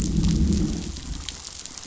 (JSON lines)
{"label": "biophony, growl", "recorder": "SoundTrap 500"}